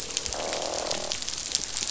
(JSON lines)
{"label": "biophony, croak", "recorder": "SoundTrap 500"}